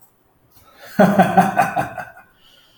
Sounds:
Laughter